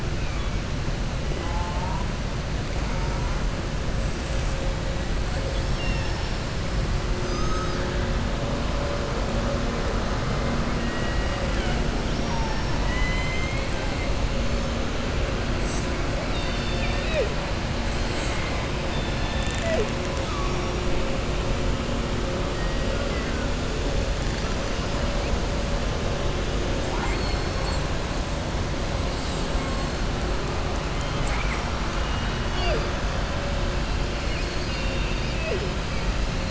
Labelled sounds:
5.4	6.4	killer whale, southern resident, 0.93 to 6.3 kHz
7.1	7.8	killer whale, southern resident, 3.8 to 6.5 kHz
10.7	13.7	killer whale, southern resident, 0.74 to 5.7 kHz
17.9	18.7	killer whale, southern resident, 1.1 to 4.6 kHz
30.9	31.7	killer whale, southern resident, 0.82 to 3.2 kHz

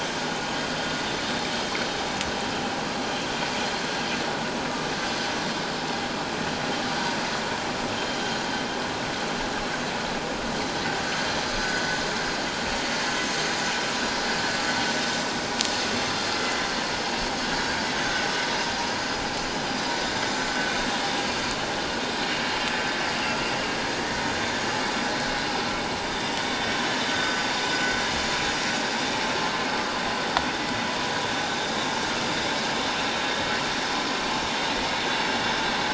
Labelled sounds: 7.9	8.5	vessel noise, 6.7 to 6.9 kHz

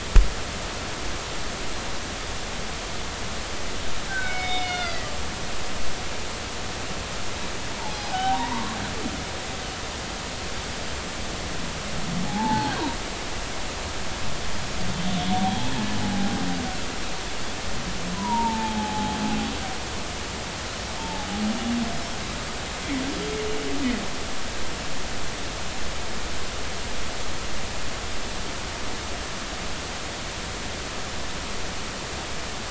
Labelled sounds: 4.1	5.1	humpback whale, 1.3 to 5.2 kHz
7.8	8.8	humpback whale, 0.80 to 1.6 kHz
12.2	12.8	humpback whale, 0.80 to 0.96 kHz
16.0	16.3	humpback whale, 0.80 to 0.86 kHz
18.1	19.2	humpback whale, 0.80 to 1.1 kHz
21.0	21.3	humpback whale, 0.80 to 0.99 kHz

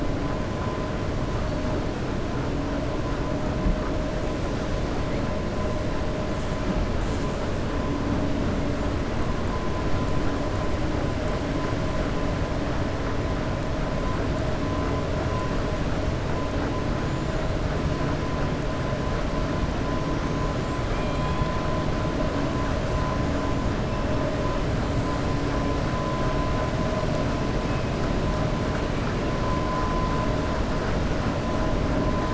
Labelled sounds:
17.0	17.4	killer whale, 6.9 to 7.2 kHz

